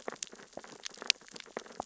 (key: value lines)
label: biophony, sea urchins (Echinidae)
recorder: SoundTrap 600 or HydroMoth